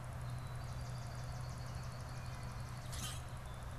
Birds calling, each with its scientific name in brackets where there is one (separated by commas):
Swamp Sparrow (Melospiza georgiana), Common Grackle (Quiscalus quiscula)